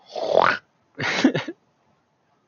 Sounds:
Throat clearing